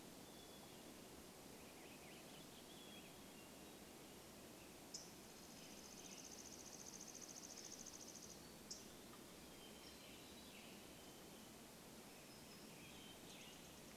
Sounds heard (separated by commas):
Hermit Thrush song, Mountain Chickadee song, unidentified sound, Warbling Vireo song, Black-capped Chickadee song, Western Tanager song, Chipping Sparrow song, unidentified bird chip note